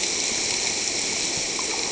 {"label": "ambient", "recorder": "HydroMoth"}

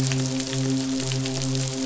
{"label": "biophony, midshipman", "recorder": "SoundTrap 500"}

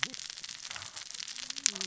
{"label": "biophony, cascading saw", "recorder": "SoundTrap 600 or HydroMoth"}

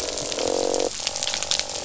{"label": "biophony, croak", "recorder": "SoundTrap 500"}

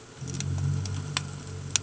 {"label": "anthrophony, boat engine", "recorder": "HydroMoth"}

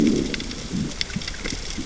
{"label": "biophony, growl", "recorder": "SoundTrap 600 or HydroMoth"}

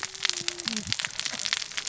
{"label": "biophony, cascading saw", "recorder": "SoundTrap 600 or HydroMoth"}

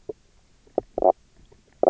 {"label": "biophony, knock croak", "recorder": "SoundTrap 300"}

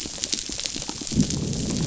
{"label": "biophony, growl", "recorder": "SoundTrap 500"}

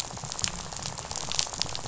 {"label": "biophony, rattle", "recorder": "SoundTrap 500"}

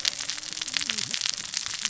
{"label": "biophony, cascading saw", "recorder": "SoundTrap 600 or HydroMoth"}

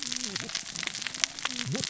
{"label": "biophony, cascading saw", "recorder": "SoundTrap 600 or HydroMoth"}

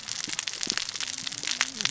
{"label": "biophony, cascading saw", "recorder": "SoundTrap 600 or HydroMoth"}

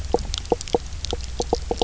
{"label": "biophony, knock croak", "recorder": "SoundTrap 300"}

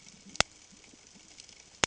{"label": "ambient", "recorder": "HydroMoth"}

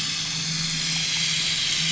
{"label": "anthrophony, boat engine", "recorder": "SoundTrap 500"}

